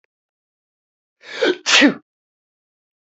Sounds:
Sneeze